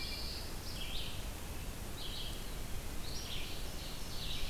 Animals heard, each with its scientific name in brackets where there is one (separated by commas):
Red-eyed Vireo (Vireo olivaceus), Ovenbird (Seiurus aurocapilla), Pine Warbler (Setophaga pinus)